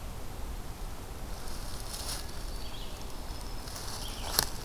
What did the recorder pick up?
Red-eyed Vireo, Black-throated Green Warbler